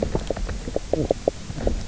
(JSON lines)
{"label": "biophony, knock croak", "recorder": "SoundTrap 300"}